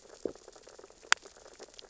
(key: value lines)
label: biophony, sea urchins (Echinidae)
recorder: SoundTrap 600 or HydroMoth